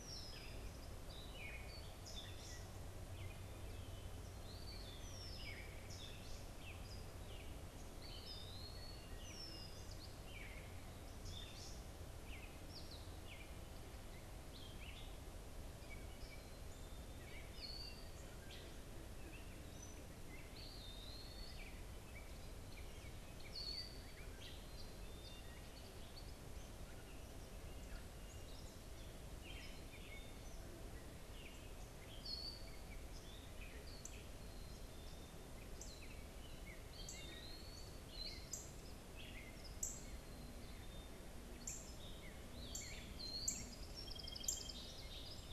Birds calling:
Gray Catbird (Dumetella carolinensis)
Eastern Wood-Pewee (Contopus virens)
Northern Cardinal (Cardinalis cardinalis)
Red-winged Blackbird (Agelaius phoeniceus)
Black-capped Chickadee (Poecile atricapillus)
Song Sparrow (Melospiza melodia)

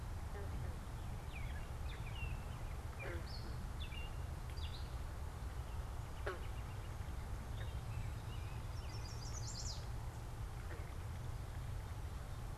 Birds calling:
unidentified bird
Chestnut-sided Warbler (Setophaga pensylvanica)
American Robin (Turdus migratorius)

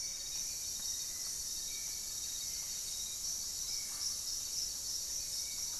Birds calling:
Gray-fronted Dove (Leptotila rufaxilla)
Hauxwell's Thrush (Turdus hauxwelli)
Black-faced Antthrush (Formicarius analis)
Paradise Tanager (Tangara chilensis)
Buff-breasted Wren (Cantorchilus leucotis)

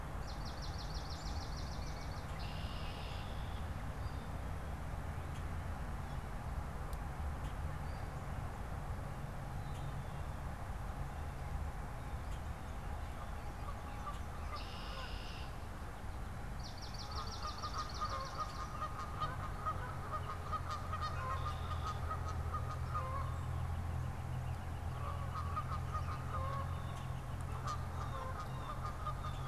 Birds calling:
Northern Flicker (Colaptes auratus)
Swamp Sparrow (Melospiza georgiana)
Red-winged Blackbird (Agelaius phoeniceus)
Blue Jay (Cyanocitta cristata)
Canada Goose (Branta canadensis)

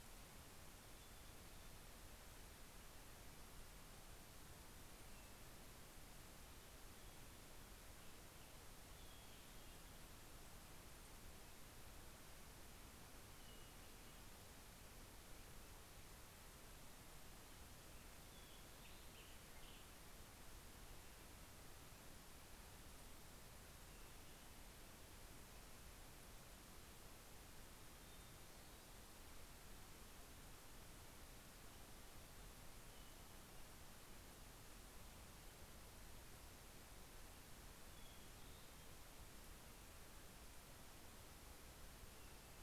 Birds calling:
Hermit Thrush (Catharus guttatus)
Black-headed Grosbeak (Pheucticus melanocephalus)

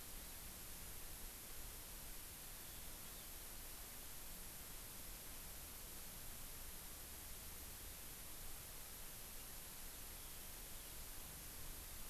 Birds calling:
Eurasian Skylark (Alauda arvensis)

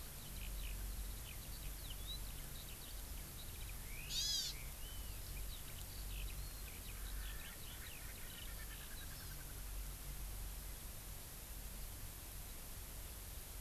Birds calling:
House Finch (Haemorhous mexicanus)
Erckel's Francolin (Pternistis erckelii)
Eurasian Skylark (Alauda arvensis)
Hawaii Amakihi (Chlorodrepanis virens)

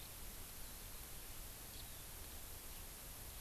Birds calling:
House Finch (Haemorhous mexicanus)

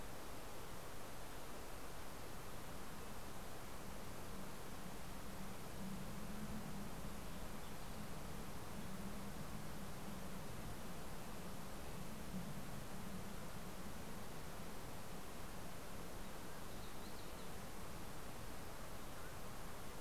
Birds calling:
Red-breasted Nuthatch (Sitta canadensis)

